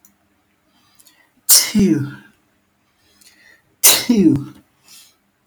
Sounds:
Sneeze